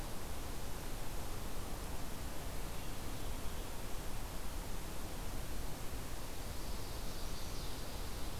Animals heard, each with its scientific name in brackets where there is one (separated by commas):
Chestnut-sided Warbler (Setophaga pensylvanica)